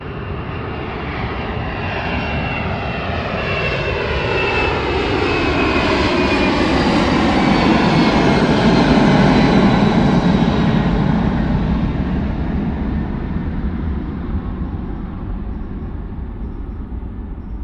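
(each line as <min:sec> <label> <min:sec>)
0:00.0 An airplane approaches and passes by. 0:08.3
0:08.3 An airplane passes by and moves away. 0:17.6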